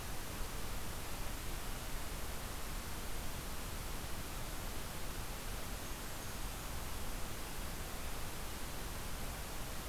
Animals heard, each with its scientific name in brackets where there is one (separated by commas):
Blackburnian Warbler (Setophaga fusca)